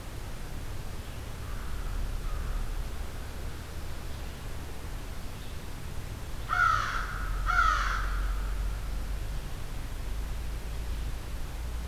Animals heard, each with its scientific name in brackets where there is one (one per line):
Red-eyed Vireo (Vireo olivaceus)
American Crow (Corvus brachyrhynchos)